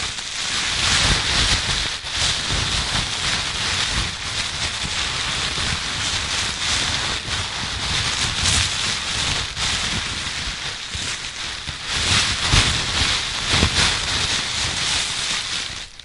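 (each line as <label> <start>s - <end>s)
Fire burning rapidly, producing high-pitched and noisy crackling sounds. 0.0s - 16.0s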